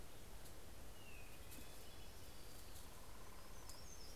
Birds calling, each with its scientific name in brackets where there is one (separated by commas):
Hermit Warbler (Setophaga occidentalis), Hermit Thrush (Catharus guttatus)